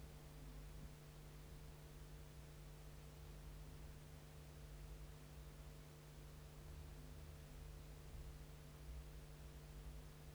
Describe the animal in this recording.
Chorthippus dichrous, an orthopteran